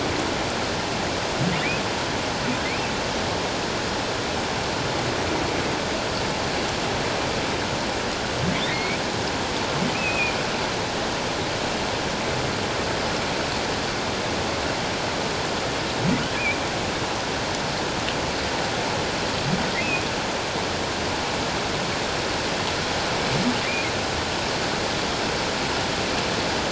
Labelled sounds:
2.6	3.0	humpback whale, 2.0 to 2.7 kHz
8.6	9.0	humpback whale, 1.8 to 2.5 kHz
9.9	10.3	humpback whale, 2.3 to 2.7 kHz
19.8	20.0	humpback whale, 2.3 to 2.7 kHz

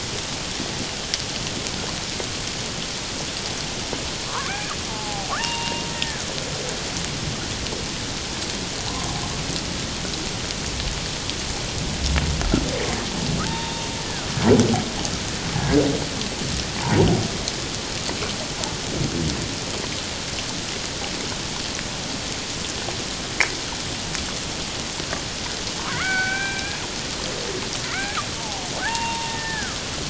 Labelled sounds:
4.3	4.7	killer whale, Bigg's (transient), call T01, 0.91 to 1.8 kHz
4.9	6.2	killer whale, Bigg's (transient), call T02, 0.78 to 2.9 kHz
13.5	13.9	killer whale, Bigg's (transient), call T02, 0.84 to 3.7 kHz
15.5	15.8	killer whale, Bigg's (transient), call T02, 1.6 to 1.8 kHz
25.9	26.8	killer whale, Bigg's (transient), call T02, 0.78 to 2.6 kHz
27.8	28.2	killer whale, Bigg's (transient), call T01, 1.2 to 2.5 kHz
28.4	29.8	killer whale, Bigg's (transient), call T02, 0.78 to 2.8 kHz

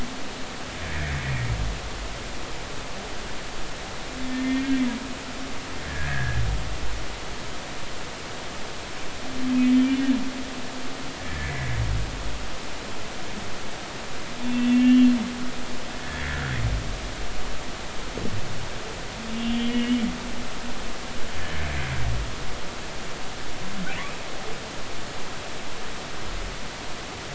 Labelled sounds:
4.3	4.8	humpback whale, 1.7 to 2.2 kHz
5.9	6.4	humpback whale, 1.6 to 1.9 kHz
9.8	10.1	humpback whale, 2.8 to 3.0 kHz
11.3	11.8	humpback whale, 1.7 to 2.3 kHz
14.4	15.1	humpback whale, 2.6 to 3.4 kHz
16.0	16.4	humpback whale, 1.6 to 1.9 kHz
19.3	20.0	humpback whale, 2.1 to 3.4 kHz

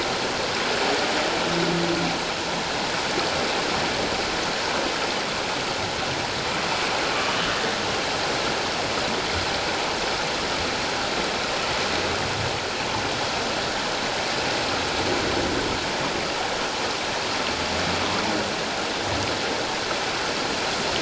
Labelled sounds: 7.1	7.4	humpback whale, 1.1 to 1.3 kHz

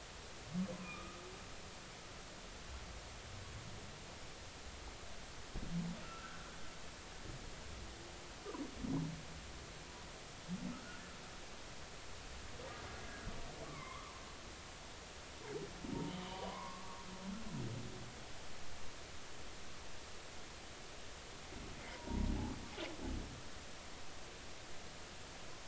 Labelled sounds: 0.8	1.2	humpback whale, 1.1 to 1.3 kHz
6.0	6.5	humpback whale, 1.3 to 1.6 kHz
13.6	14.2	humpback whale, 0.93 to 2.3 kHz
16.1	17.0	humpback whale, 0.90 to 3.1 kHz
21.9	22.3	humpback whale, 0.86 to 1.1 kHz

